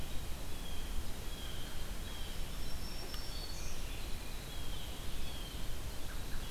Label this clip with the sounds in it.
Blue Jay, Red-eyed Vireo, Black-throated Green Warbler, Tufted Titmouse